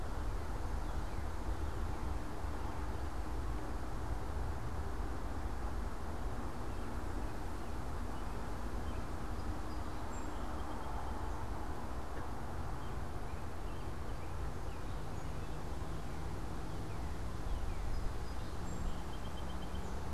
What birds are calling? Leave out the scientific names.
Northern Cardinal, American Robin, Song Sparrow